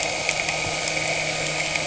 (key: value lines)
label: anthrophony, boat engine
recorder: HydroMoth